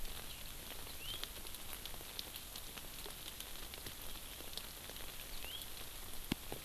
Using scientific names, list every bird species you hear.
Haemorhous mexicanus